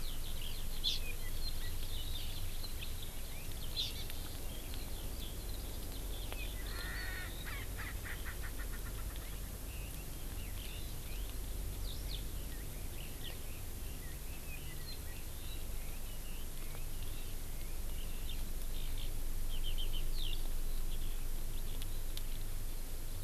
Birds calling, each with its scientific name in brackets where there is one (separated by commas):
Hawaii Amakihi (Chlorodrepanis virens), Erckel's Francolin (Pternistis erckelii), Eurasian Skylark (Alauda arvensis), Red-billed Leiothrix (Leiothrix lutea)